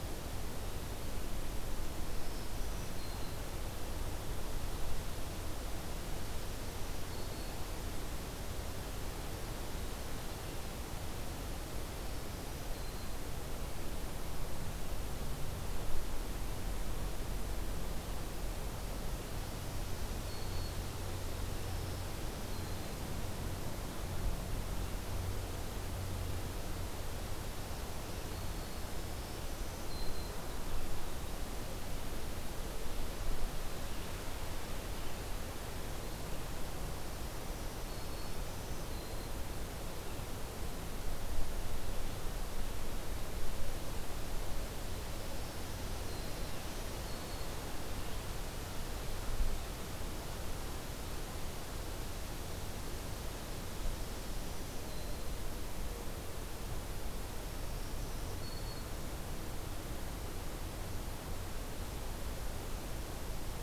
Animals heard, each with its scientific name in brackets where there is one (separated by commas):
Black-throated Green Warbler (Setophaga virens)